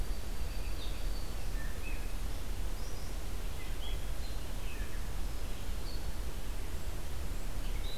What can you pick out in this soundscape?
Black-throated Green Warbler, Red-eyed Vireo